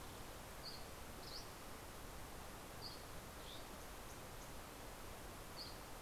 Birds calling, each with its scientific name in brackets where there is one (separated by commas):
Green-tailed Towhee (Pipilo chlorurus), Dusky Flycatcher (Empidonax oberholseri)